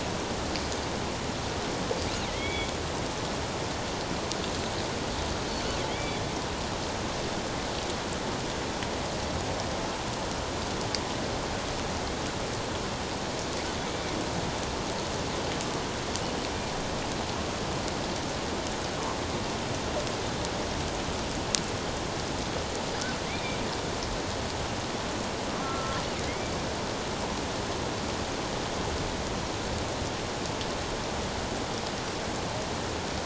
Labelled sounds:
2.3	2.7	killer whale, offshore, 1.9 to 3.5 kHz
5.9	6.2	killer whale, offshore, 2.0 to 3.5 kHz
23.2	23.6	killer whale, offshore, 2.0 to 2.5 kHz
25.6	26.5	killer whale, offshore, 1.2 to 2.4 kHz

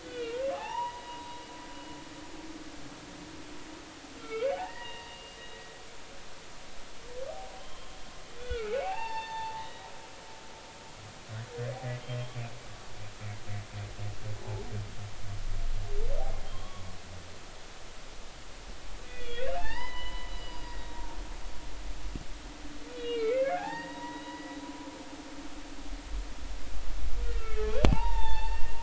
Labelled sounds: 0.0	1.4	humpback whale, 0.80 to 3.9 kHz
4.2	5.4	humpback whale, 0.80 to 2.9 kHz
7.6	9.9	humpback whale, 0.80 to 4.6 kHz
16.4	16.8	humpback whale, 0.99 to 3.4 kHz
19.0	21.2	humpback whale, 0.80 to 5.1 kHz
22.9	24.6	humpback whale, 0.80 to 4.9 kHz
27.4	28.8	humpback whale, 0.80 to 4.6 kHz

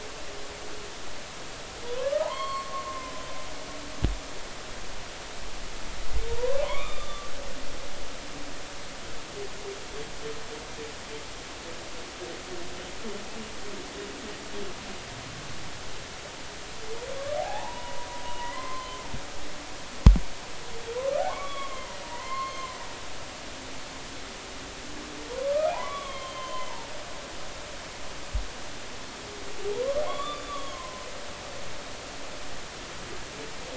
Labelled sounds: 1.8	3.1	humpback whale, 0.80 to 4.5 kHz
6.6	7.3	humpback whale, 0.93 to 3.7 kHz
17.4	19.0	humpback whale, 0.80 to 2.1 kHz
21.3	23.0	humpback whale, 0.90 to 4.3 kHz
25.7	26.7	humpback whale, 0.80 to 3.5 kHz
30.1	31.1	humpback whale, 0.96 to 3.6 kHz

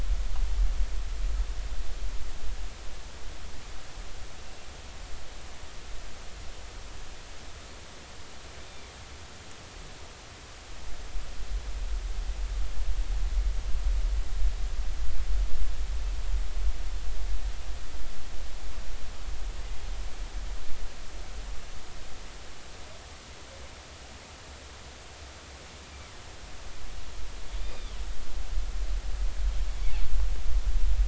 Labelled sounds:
8.7	8.9	killer whale, northern resident, A clan, call N20, 2.3 to 3.7 kHz
27.6	28.0	killer whale, northern resident, A clan, call N20, 2.3 to 4.9 kHz

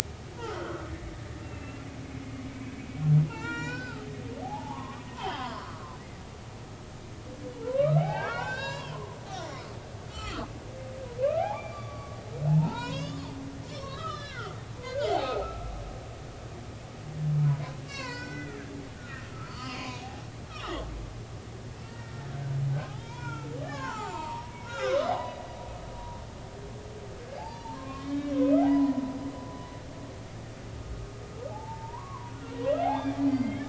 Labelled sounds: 0.4	0.8	humpback whale, 1.2 to 1.5 kHz
1.4	1.8	humpback whale, 2.6 to 2.8 kHz
2.4	2.7	humpback whale, 2.2 to 2.3 kHz
3.2	4.1	humpback whale, 0.83 to 7.4 kHz
4.4	6.0	humpback whale, 0.80 to 5.2 kHz
7.7	9.6	humpback whale, 0.80 to 5.9 kHz
10.1	10.5	humpback whale, 0.99 to 7.5 kHz
11.4	12.2	humpback whale, 0.80 to 2.5 kHz
12.5	13.2	humpback whale, 0.80 to 7.0 kHz
13.7	15.7	humpback whale, 0.80 to 6.0 kHz
17.8	20.0	humpback whale, 0.93 to 7.5 kHz
20.5	20.9	humpback whale, 1.0 to 1.5 kHz
21.8	25.4	humpback whale, 0.80 to 7.4 kHz
27.3	28.3	humpback whale, 0.80 to 5.0 kHz
28.7	29.3	humpback whale, 0.93 to 3.8 kHz
31.5	33.6	humpback whale, 0.80 to 4.8 kHz

